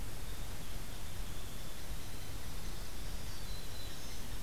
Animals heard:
Hairy Woodpecker (Dryobates villosus), Black-throated Green Warbler (Setophaga virens)

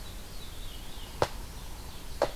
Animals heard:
Ovenbird (Seiurus aurocapilla), Veery (Catharus fuscescens), Black-throated Blue Warbler (Setophaga caerulescens)

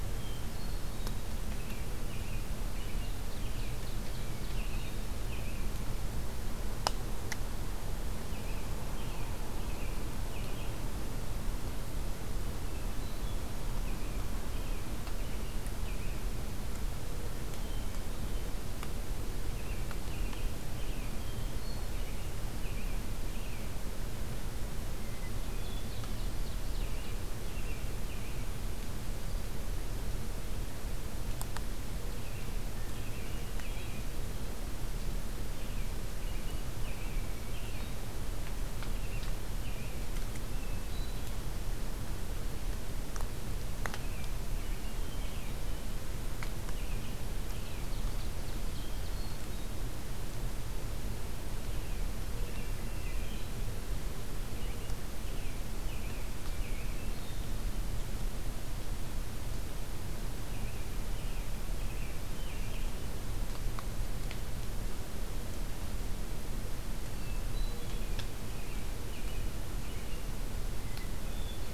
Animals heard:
American Robin (Turdus migratorius), Ovenbird (Seiurus aurocapilla), Hermit Thrush (Catharus guttatus), Mourning Dove (Zenaida macroura)

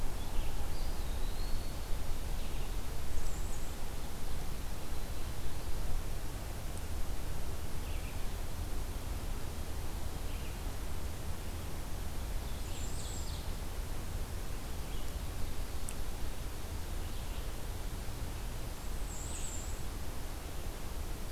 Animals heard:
Bay-breasted Warbler (Setophaga castanea), Red-eyed Vireo (Vireo olivaceus), Ovenbird (Seiurus aurocapilla), Eastern Wood-Pewee (Contopus virens)

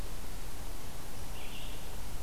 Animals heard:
Red-eyed Vireo (Vireo olivaceus)

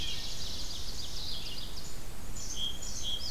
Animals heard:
Black-throated Blue Warbler (Setophaga caerulescens), Red-eyed Vireo (Vireo olivaceus), Song Sparrow (Melospiza melodia), Ovenbird (Seiurus aurocapilla)

